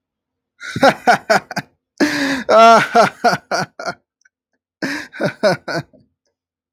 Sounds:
Laughter